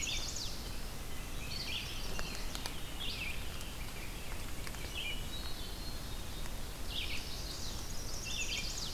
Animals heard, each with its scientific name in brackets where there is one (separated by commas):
Hermit Thrush (Catharus guttatus), Chestnut-sided Warbler (Setophaga pensylvanica), Red-eyed Vireo (Vireo olivaceus), Black-capped Chickadee (Poecile atricapillus), Rose-breasted Grosbeak (Pheucticus ludovicianus)